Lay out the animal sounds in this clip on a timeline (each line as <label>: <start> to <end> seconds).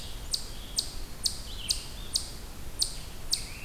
Eastern Chipmunk (Tamias striatus): 0.0 to 3.6 seconds